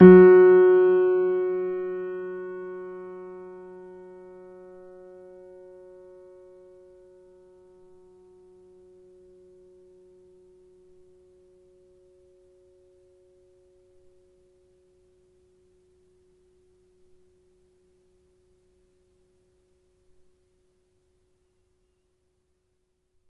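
A piano key is struck once forcefully, with the sound fading into silence. 0:00.0 - 0:21.3
Faint continuous static rushing in the background. 0:03.7 - 0:23.3

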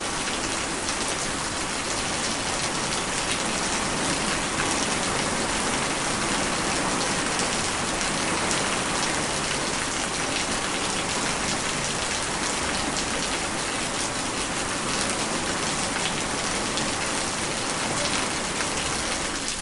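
Heavy rain. 0:00.0 - 0:19.6

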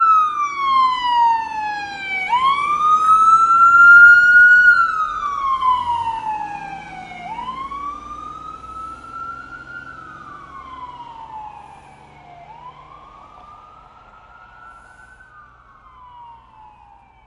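A sharp police siren wails repeatedly with an urgent tone, then fades away. 0:00.0 - 0:08.1

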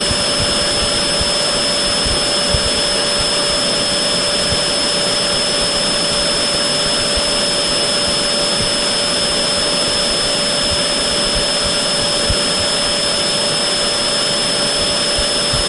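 A vacuum cleaner running. 0:00.0 - 0:15.7

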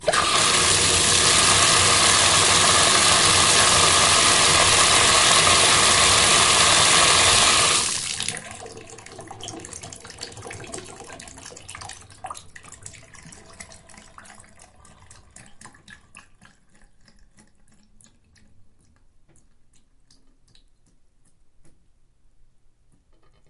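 A strong and steady flow of water from a tap gradually transitions into slower dripping sounds before stopping completely, with faint water droplets heard at the end. 0:00.0 - 0:22.0

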